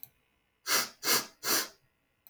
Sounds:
Sniff